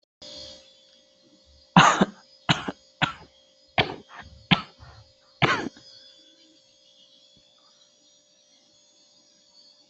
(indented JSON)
{
  "expert_labels": [
    {
      "quality": "good",
      "cough_type": "dry",
      "dyspnea": false,
      "wheezing": false,
      "stridor": false,
      "choking": false,
      "congestion": false,
      "nothing": true,
      "diagnosis": "upper respiratory tract infection",
      "severity": "mild"
    }
  ]
}